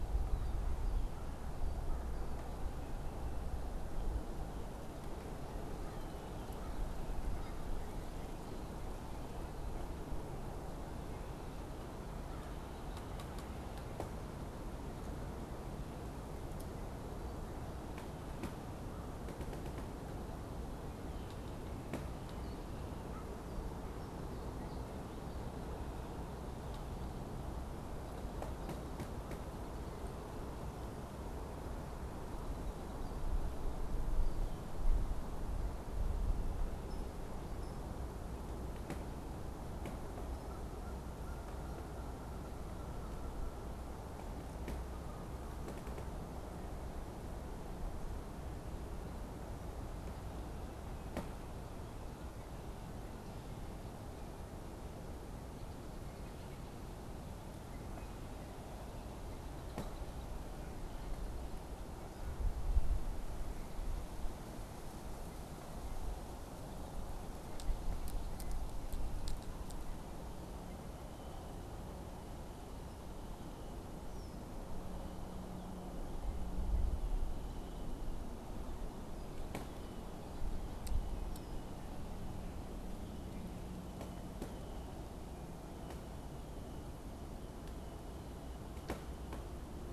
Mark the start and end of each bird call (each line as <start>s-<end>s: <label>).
22.8s-24.5s: American Crow (Corvus brachyrhynchos)
40.4s-46.0s: Canada Goose (Branta canadensis)
55.9s-61.6s: Red-winged Blackbird (Agelaius phoeniceus)
70.7s-74.5s: Red-winged Blackbird (Agelaius phoeniceus)